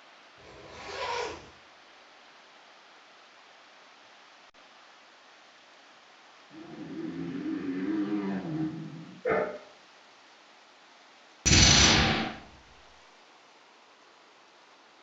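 At the start, there is the sound of a zipper. Afterwards, about 7 seconds in, you can hear a motorcycle. Next, about 9 seconds in, a dog is heard. Finally, about 11 seconds in, the loud sound of glass is audible.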